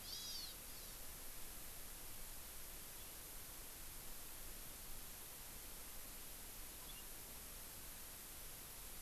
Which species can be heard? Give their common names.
Hawaii Amakihi